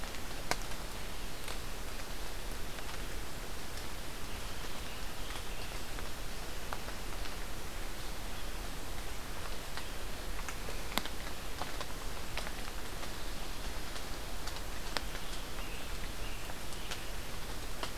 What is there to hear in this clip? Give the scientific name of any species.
Piranga olivacea